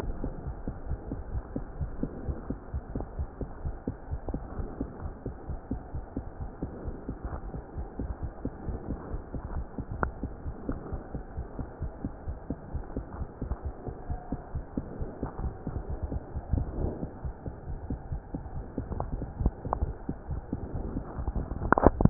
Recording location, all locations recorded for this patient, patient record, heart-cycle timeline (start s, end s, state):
aortic valve (AV)
aortic valve (AV)+pulmonary valve (PV)+tricuspid valve (TV)+mitral valve (MV)
#Age: Child
#Sex: Female
#Height: 123.0 cm
#Weight: 20.4 kg
#Pregnancy status: False
#Murmur: Absent
#Murmur locations: nan
#Most audible location: nan
#Systolic murmur timing: nan
#Systolic murmur shape: nan
#Systolic murmur grading: nan
#Systolic murmur pitch: nan
#Systolic murmur quality: nan
#Diastolic murmur timing: nan
#Diastolic murmur shape: nan
#Diastolic murmur grading: nan
#Diastolic murmur pitch: nan
#Diastolic murmur quality: nan
#Outcome: Abnormal
#Campaign: 2015 screening campaign
0.00	0.31	unannotated
0.31	0.45	diastole
0.45	0.53	S1
0.53	0.66	systole
0.66	0.72	S2
0.72	0.88	diastole
0.88	0.96	S1
0.96	1.09	systole
1.09	1.18	S2
1.18	1.32	diastole
1.32	1.42	S1
1.42	1.54	systole
1.54	1.61	S2
1.61	1.78	diastole
1.78	1.87	S1
1.87	2.00	systole
2.00	2.09	S2
2.09	2.25	diastole
2.25	2.35	S1
2.35	2.48	systole
2.48	2.56	S2
2.56	2.72	diastole
2.72	2.82	S1
2.82	2.93	systole
2.93	3.00	S2
3.00	3.18	diastole
3.18	3.26	S1
3.26	3.39	systole
3.39	3.50	S2
3.50	3.63	diastole
3.63	3.73	S1
3.73	3.85	systole
3.85	3.92	S2
3.92	4.08	diastole
4.08	4.20	S1
4.20	4.28	systole
4.28	4.42	S2
4.42	4.57	diastole
4.57	4.64	S1
4.64	4.78	systole
4.78	4.90	S2
4.90	5.02	diastole
5.02	5.14	S1
5.14	5.23	systole
5.23	5.31	S2
5.31	5.48	diastole
5.48	5.60	S1
5.60	5.70	systole
5.70	5.80	S2
5.80	5.92	diastole
5.92	6.01	S1
6.01	6.15	systole
6.15	6.23	S2
6.23	6.39	diastole
6.39	6.49	S1
6.49	6.62	systole
6.62	6.70	S2
6.70	6.85	diastole
6.85	6.95	S1
6.95	7.07	systole
7.07	7.14	S2
7.14	7.24	diastole
7.24	22.10	unannotated